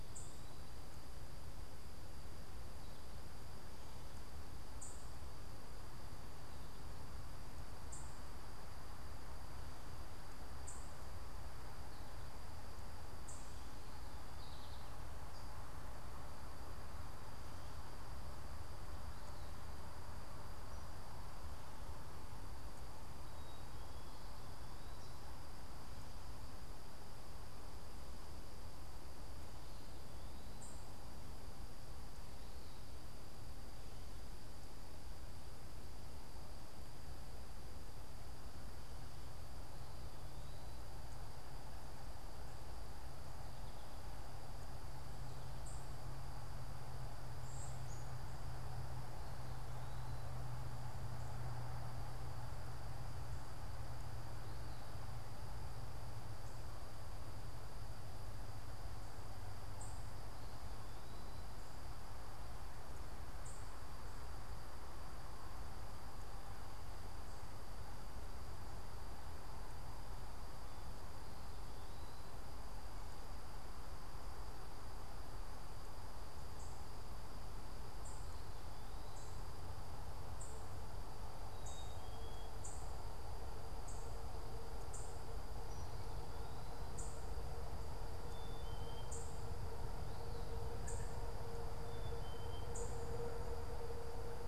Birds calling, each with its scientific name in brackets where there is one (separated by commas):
American Goldfinch (Spinus tristis), Northern Cardinal (Cardinalis cardinalis), unidentified bird, Black-capped Chickadee (Poecile atricapillus)